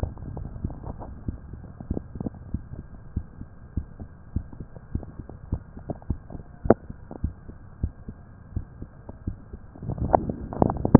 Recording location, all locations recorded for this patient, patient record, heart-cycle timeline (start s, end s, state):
mitral valve (MV)
aortic valve (AV)+pulmonary valve (PV)+tricuspid valve (TV)+mitral valve (MV)
#Age: Adolescent
#Sex: Male
#Height: 166.0 cm
#Weight: 71.3 kg
#Pregnancy status: False
#Murmur: Absent
#Murmur locations: nan
#Most audible location: nan
#Systolic murmur timing: nan
#Systolic murmur shape: nan
#Systolic murmur grading: nan
#Systolic murmur pitch: nan
#Systolic murmur quality: nan
#Diastolic murmur timing: nan
#Diastolic murmur shape: nan
#Diastolic murmur grading: nan
#Diastolic murmur pitch: nan
#Diastolic murmur quality: nan
#Outcome: Normal
#Campaign: 2015 screening campaign
0.00	3.12	unannotated
3.12	3.26	S1
3.26	3.38	systole
3.38	3.46	S2
3.46	3.72	diastole
3.72	3.86	S1
3.86	3.98	systole
3.98	4.08	S2
4.08	4.32	diastole
4.32	4.46	S1
4.46	4.58	systole
4.58	4.66	S2
4.66	4.92	diastole
4.92	5.03	S1
5.03	5.16	systole
5.16	5.24	S2
5.24	5.48	diastole
5.48	5.62	S1
5.62	5.74	systole
5.74	5.82	S2
5.82	6.06	diastole
6.06	6.20	S1
6.20	6.30	systole
6.30	6.40	S2
6.40	6.62	diastole
6.62	6.72	S1
6.72	6.88	systole
6.88	6.96	S2
6.96	7.20	diastole
7.20	7.34	S1
7.34	7.46	systole
7.46	7.54	S2
7.54	7.80	diastole
7.80	7.94	S1
7.94	8.06	systole
8.06	8.15	S2
8.15	8.52	diastole
8.52	8.66	S1
8.66	8.80	systole
8.80	8.88	S2
8.88	9.22	diastole
9.22	9.38	S1
9.38	9.50	systole
9.50	9.60	S2
9.60	9.94	diastole
9.94	10.12	S1
10.12	10.99	unannotated